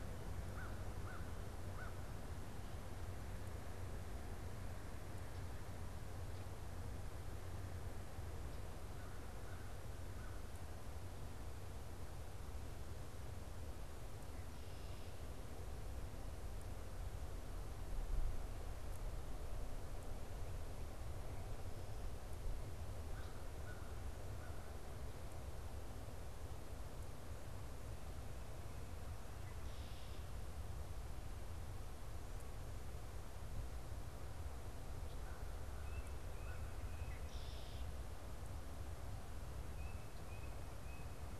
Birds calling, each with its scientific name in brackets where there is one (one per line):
Tufted Titmouse (Baeolophus bicolor)
Red-winged Blackbird (Agelaius phoeniceus)
American Crow (Corvus brachyrhynchos)